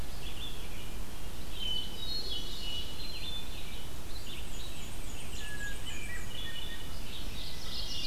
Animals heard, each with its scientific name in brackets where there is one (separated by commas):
Black-and-white Warbler (Mniotilta varia), Hermit Thrush (Catharus guttatus), Red-eyed Vireo (Vireo olivaceus), Ovenbird (Seiurus aurocapilla)